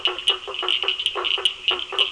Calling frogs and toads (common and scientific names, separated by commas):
blacksmith tree frog (Boana faber), Cochran's lime tree frog (Sphaenorhynchus surdus), lesser tree frog (Dendropsophus minutus)